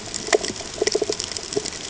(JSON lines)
{"label": "ambient", "recorder": "HydroMoth"}